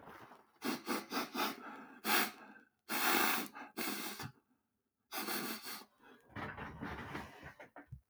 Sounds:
Sniff